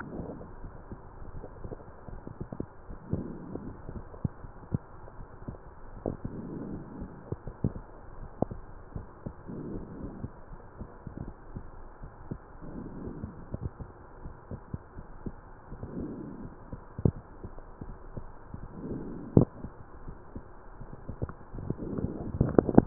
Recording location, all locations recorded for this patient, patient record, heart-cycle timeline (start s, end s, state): pulmonary valve (PV)
aortic valve (AV)+pulmonary valve (PV)
#Age: nan
#Sex: Female
#Height: nan
#Weight: nan
#Pregnancy status: True
#Murmur: Absent
#Murmur locations: nan
#Most audible location: nan
#Systolic murmur timing: nan
#Systolic murmur shape: nan
#Systolic murmur grading: nan
#Systolic murmur pitch: nan
#Systolic murmur quality: nan
#Diastolic murmur timing: nan
#Diastolic murmur shape: nan
#Diastolic murmur grading: nan
#Diastolic murmur pitch: nan
#Diastolic murmur quality: nan
#Outcome: Normal
#Campaign: 2015 screening campaign
0.00	8.73	unannotated
8.73	8.96	diastole
8.96	9.08	S1
9.08	9.22	systole
9.22	9.34	S2
9.34	9.70	diastole
9.70	9.84	S1
9.84	9.99	systole
9.99	10.14	S2
10.14	10.48	diastole
10.48	10.64	S1
10.64	10.76	systole
10.76	10.86	S2
10.86	11.19	diastole
11.19	11.34	S1
11.34	11.52	systole
11.52	11.65	S2
11.65	11.97	diastole
11.97	12.12	S1
12.12	12.26	systole
12.26	12.40	S2
12.40	12.64	diastole
12.64	12.86	S1
12.86	13.02	diastole
13.02	13.16	S2
13.16	14.18	diastole
14.18	14.35	S1
14.35	14.50	systole
14.50	14.65	S2
14.65	14.98	diastole
14.98	15.10	S1
15.10	15.22	systole
15.22	15.34	S2
15.34	15.56	diastole
15.56	22.86	unannotated